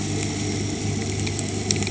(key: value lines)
label: anthrophony, boat engine
recorder: HydroMoth